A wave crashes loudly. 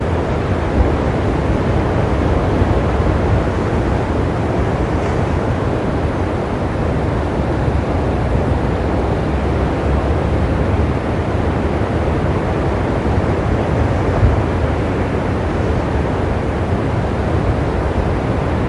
14.0s 14.5s

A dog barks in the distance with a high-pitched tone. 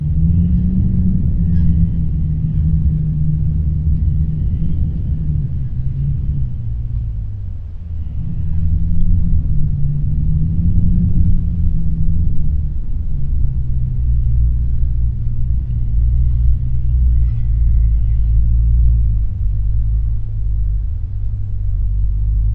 1.5s 2.7s, 8.5s 8.8s

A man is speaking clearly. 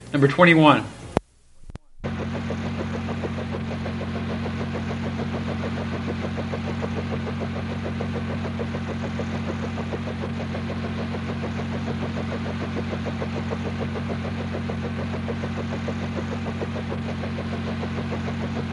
0.0s 1.2s

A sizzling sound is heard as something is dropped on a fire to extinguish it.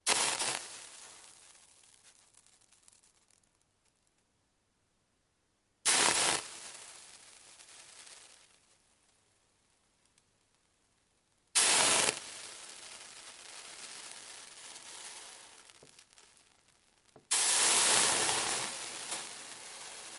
0.0s 3.3s, 5.8s 8.3s, 11.4s 20.2s

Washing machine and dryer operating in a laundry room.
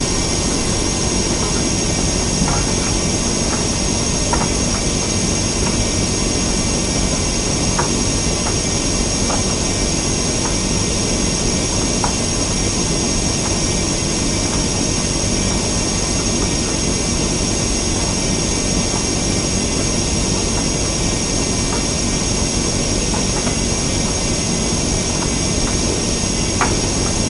0.1s 16.9s

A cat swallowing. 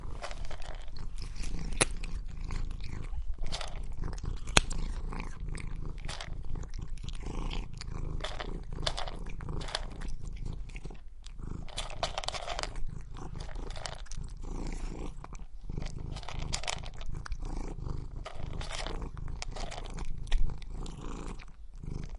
11.1s 11.7s

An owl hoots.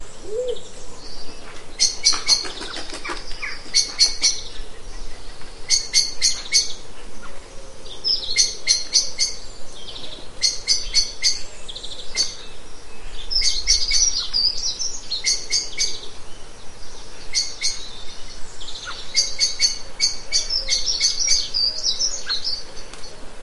0.2s 0.6s

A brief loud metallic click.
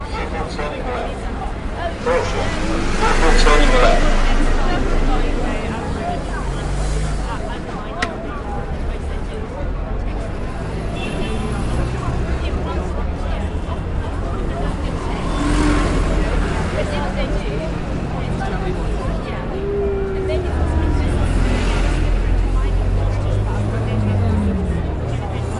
8.0s 8.2s

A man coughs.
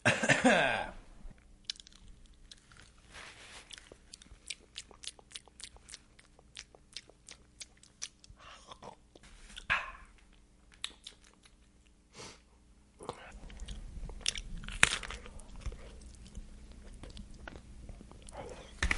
0.0s 1.1s

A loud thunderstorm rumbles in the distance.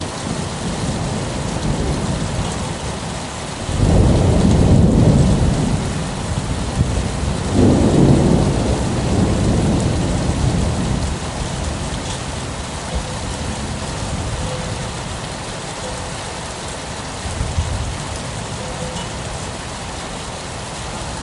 3.8s 5.9s, 7.0s 11.0s

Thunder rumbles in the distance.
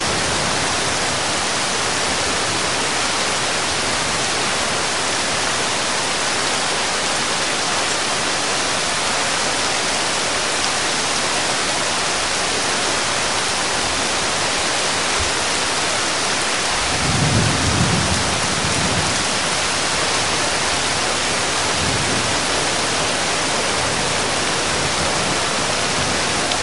16.9s 19.4s

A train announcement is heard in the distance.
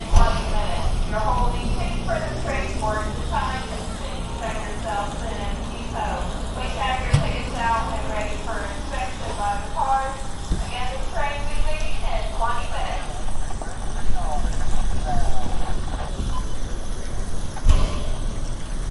0.0s 10.0s, 12.3s 16.2s

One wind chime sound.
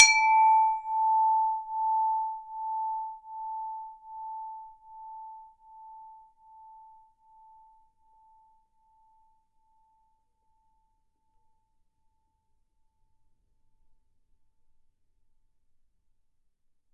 0.0s 4.8s

